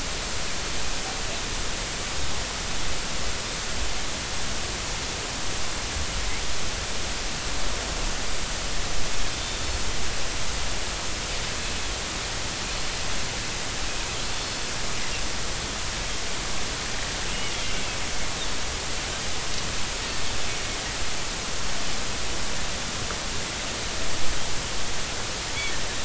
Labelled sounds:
14.2	14.6	Pacific white-sided dolphin, 4.3 to 4.5 kHz
17.3	17.6	Pacific white-sided dolphin, 2.7 to 3.1 kHz

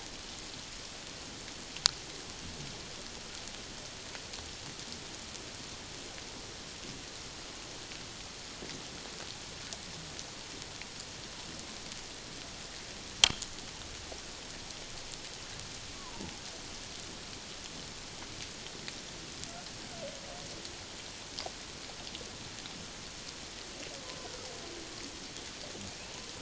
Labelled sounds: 15.9	16.4	humpback whale, 0.78 to 1.2 kHz

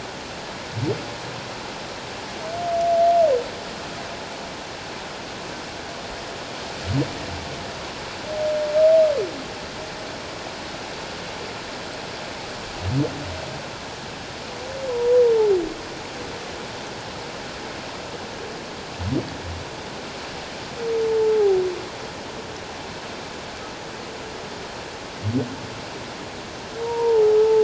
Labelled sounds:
21.3	21.6	humpback whale, 0.78 to 0.88 kHz
26.8	27.6	humpback whale, 0.78 to 1.0 kHz

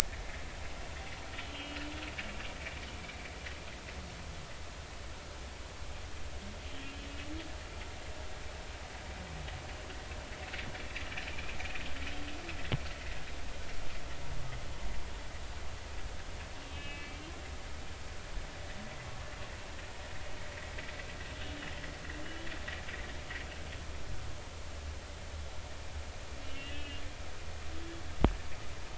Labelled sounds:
1.5	1.8	humpback whale, 2.7 to 3.2 kHz
11.3	11.6	humpback whale, 2.2 to 2.6 kHz
16.7	17.2	humpback whale, 2.2 to 2.9 kHz
26.5	27.0	humpback whale, 1.6 to 3.1 kHz

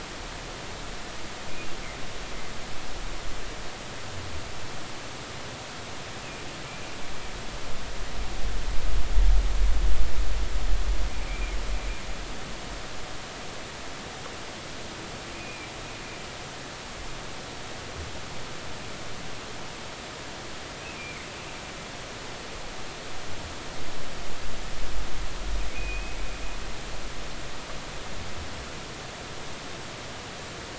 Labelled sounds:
11.2	11.5	humpback whale, 2.1 to 2.5 kHz
15.3	15.7	humpback whale, 2.3 to 2.7 kHz
20.8	21.3	humpback whale, 2.0 to 2.8 kHz
25.7	26.2	humpback whale, 2.4 to 2.6 kHz

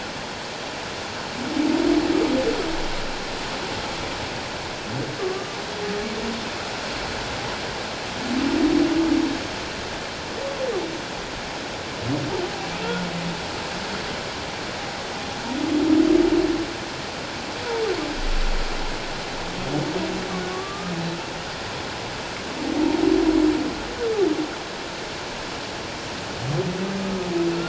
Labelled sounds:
5.2	5.6	humpback whale, 1.1 to 1.2 kHz
20.5	20.9	humpback whale, 1.1 to 1.3 kHz

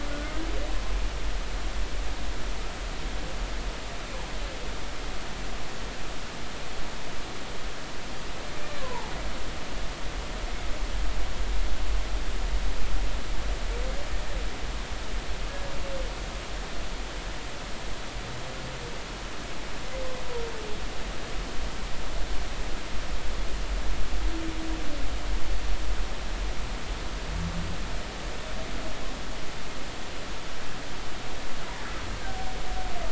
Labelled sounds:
0.1	0.3	humpback whale, 1.4 to 1.5 kHz
8.8	9.1	humpback whale, 0.83 to 1.2 kHz

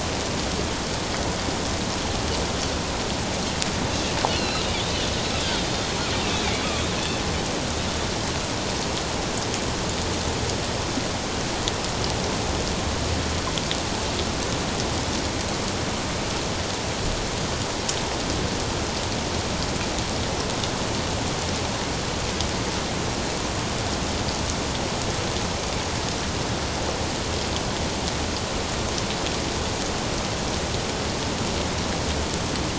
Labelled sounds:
4.3	5.9	Pacific white-sided dolphin, 2.5 to 4.5 kHz

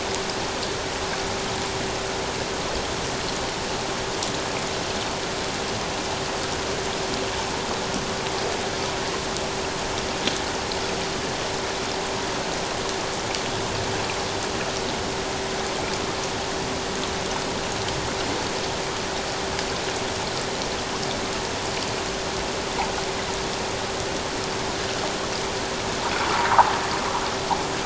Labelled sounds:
26.3	26.7	sound from a nearby beach, 0.78 to 1.3 kHz

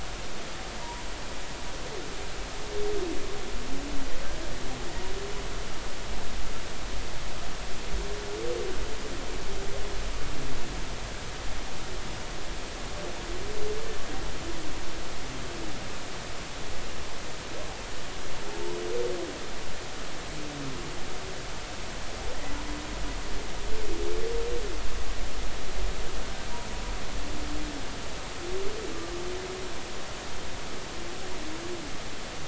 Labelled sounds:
0.8	1.0	humpback whale, 0.90 to 1.0 kHz

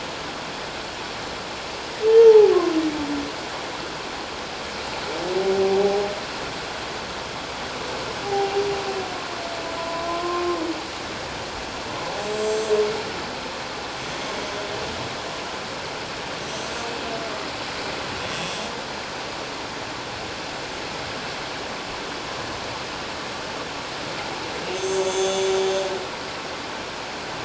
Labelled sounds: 2.2	2.5	humpback whale, 0.78 to 0.97 kHz
8.2	8.6	humpback whale, 0.78 to 0.88 kHz
9.8	10.6	humpback whale, 0.94 to 1.1 kHz
12.2	12.7	humpback whale, 6.0 to 7.9 kHz
16.4	16.7	humpback whale, 5.8 to 6.0 kHz
24.7	25.6	humpback whale, 3.4 to 7.8 kHz

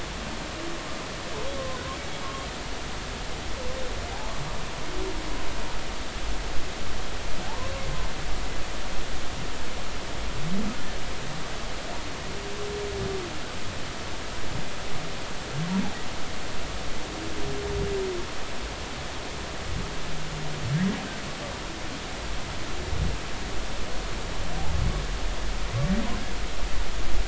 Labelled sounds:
7.4	7.7	humpback whale, 0.80 to 1.1 kHz

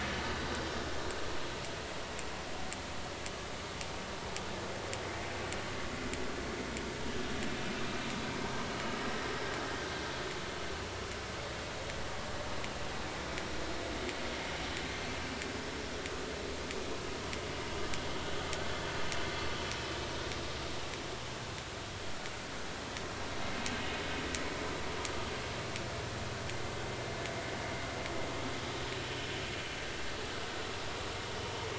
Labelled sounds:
28.9	29.3	vessel noise, 2.9 to 3.0 kHz

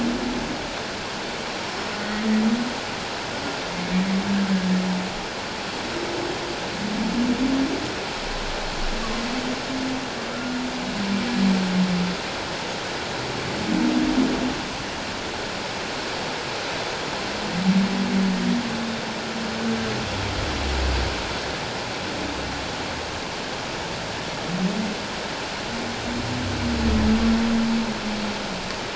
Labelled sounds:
1.7	2.0	Pacific white-sided dolphin, 5.2 to 5.4 kHz
10.3	10.6	humpback whale, 1.3 to 1.5 kHz

